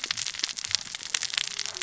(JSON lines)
{"label": "biophony, cascading saw", "recorder": "SoundTrap 600 or HydroMoth"}